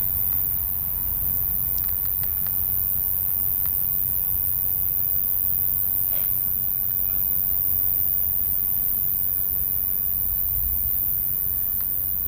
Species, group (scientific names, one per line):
Ruspolia nitidula
Orthoptera